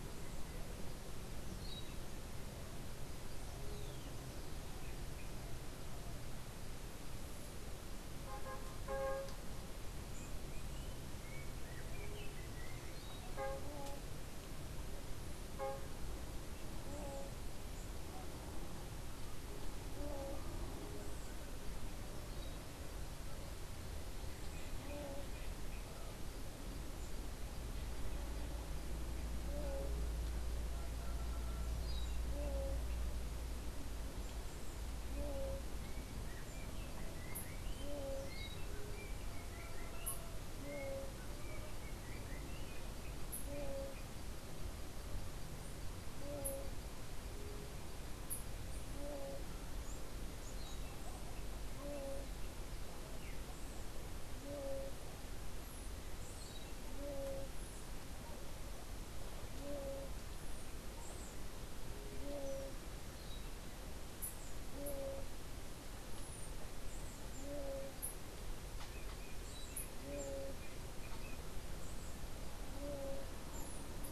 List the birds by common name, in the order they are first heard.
Yellow-backed Oriole